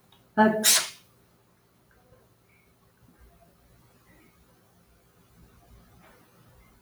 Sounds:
Sneeze